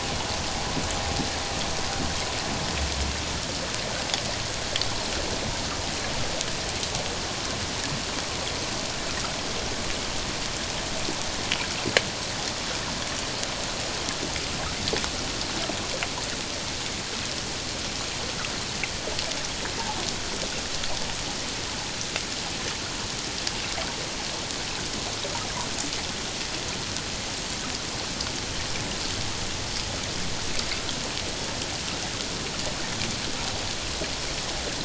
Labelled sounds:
19.8	20.0	humpback whale, 0.78 to 0.97 kHz

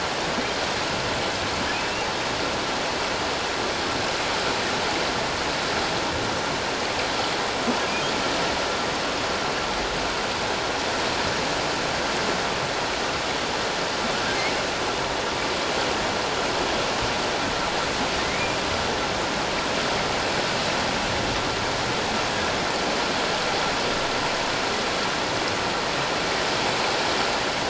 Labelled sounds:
18.2	18.6	humpback whale, 2.0 to 2.5 kHz

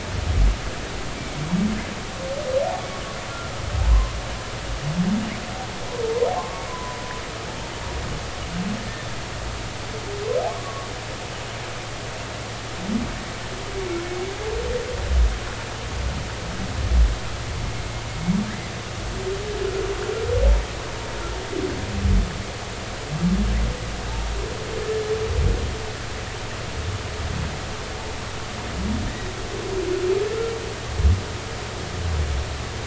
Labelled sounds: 1.2	1.4	humpback whale, 2.2 to 2.4 kHz
3.9	4.1	humpback whale, 0.96 to 1.1 kHz
6.4	7.0	humpback whale, 0.96 to 1.2 kHz
10.5	10.9	humpback whale, 1.0 to 1.2 kHz

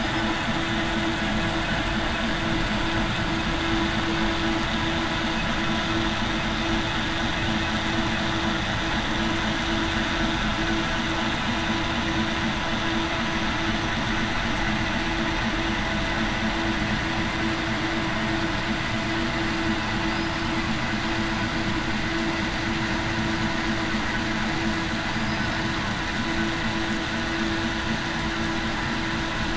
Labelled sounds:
25.1	25.5	killer whale, southern resident, 4.7 to 5.1 kHz

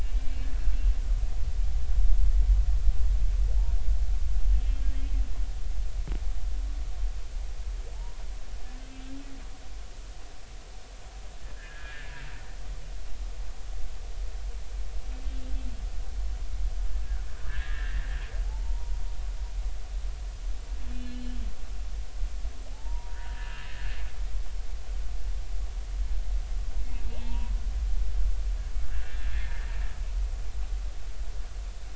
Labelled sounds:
0.0	0.5	humpback whale, 2.2 to 2.9 kHz
4.5	4.8	humpback whale, 2.6 to 3.2 kHz
11.5	12.1	humpback whale, 1.5 to 1.8 kHz
17.4	18.9	humpback whale, 0.80 to 2.0 kHz
20.9	21.2	humpback whale, 2.7 to 2.8 kHz
22.7	24.0	humpback whale, 0.80 to 1.9 kHz
27.0	27.6	humpback whale, 0.80 to 2.9 kHz
28.9	29.7	humpback whale, 1.5 to 1.9 kHz

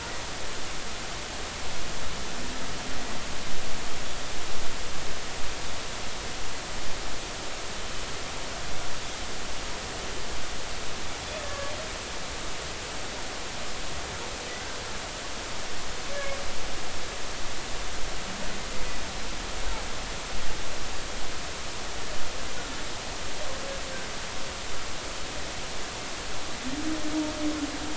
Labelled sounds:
11.4	11.7	humpback whale, 1.1 to 1.8 kHz

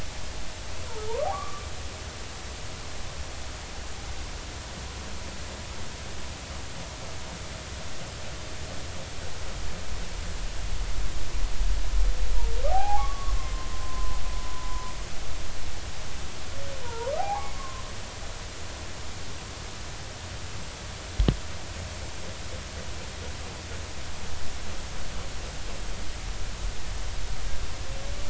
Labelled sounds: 1.1	1.7	humpback whale, 0.86 to 1.3 kHz
12.7	14.2	humpback whale, 0.80 to 1.2 kHz
14.5	14.9	humpback whale, 0.93 to 1.0 kHz
16.8	17.8	humpback whale, 0.80 to 1.5 kHz

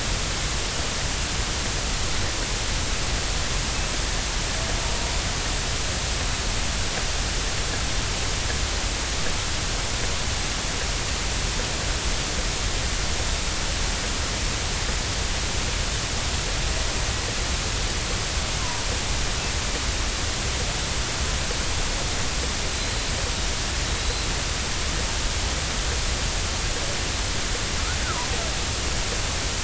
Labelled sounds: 23.8	24.2	killer whale, 3.8 to 4.2 kHz

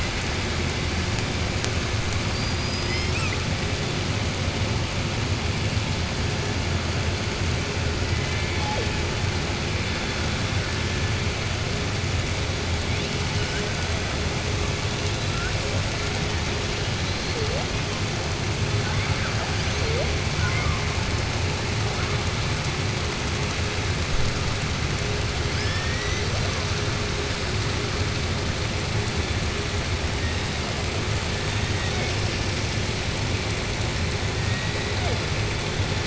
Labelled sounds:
2.3	3.4	killer whale, southern resident, 1.3 to 7.9 kHz
20.3	20.8	killer whale, southern resident, 0.70 to 2.3 kHz

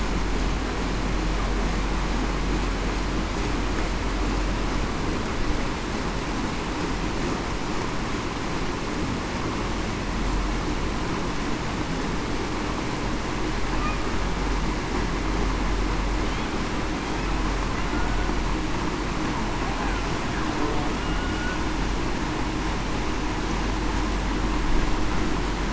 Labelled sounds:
21.0	21.4	humpback whale, 1.4 to 1.5 kHz

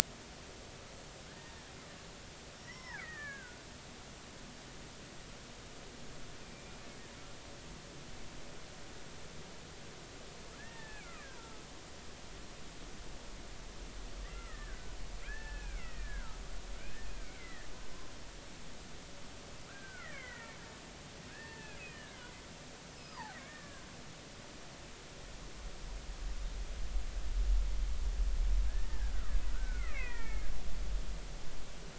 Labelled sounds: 1.3	1.5	killer whale, Bigg's (transient), 1.5 to 1.9 kHz
2.6	3.7	killer whale, Bigg's (transient), 0.80 to 5.6 kHz
4.0	4.4	killer whale, Bigg's (transient), 1.1 to 1.4 kHz
6.4	6.7	killer whale, Bigg's (transient), 2.3 to 2.6 kHz
10.6	11.6	killer whale, Bigg's (transient), 0.80 to 1.9 kHz
14.2	14.8	killer whale, Bigg's (transient), 1.2 to 2.2 kHz
15.2	16.4	killer whale, Bigg's (transient), 1.2 to 2.8 kHz
17.2	17.7	killer whale, Bigg's (transient), 1.7 to 2.5 kHz
19.7	20.6	killer whale, Bigg's (transient), 1.2 to 2.4 kHz
21.3	22.3	killer whale, Bigg's (transient), 0.86 to 2.0 kHz
23.0	23.8	killer whale, Bigg's (transient), 0.80 to 5.3 kHz
28.7	30.5	killer whale, Bigg's (transient), 0.99 to 2.8 kHz

